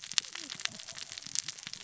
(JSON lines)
{"label": "biophony, cascading saw", "recorder": "SoundTrap 600 or HydroMoth"}